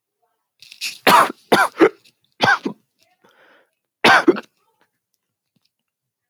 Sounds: Cough